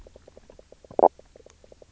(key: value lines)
label: biophony, knock croak
recorder: SoundTrap 300